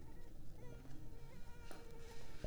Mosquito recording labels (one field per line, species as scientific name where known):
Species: Culex pipiens complex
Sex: female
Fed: unfed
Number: one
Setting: cup